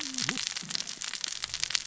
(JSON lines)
{"label": "biophony, cascading saw", "recorder": "SoundTrap 600 or HydroMoth"}